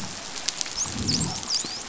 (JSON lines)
{"label": "biophony, dolphin", "recorder": "SoundTrap 500"}
{"label": "biophony, growl", "recorder": "SoundTrap 500"}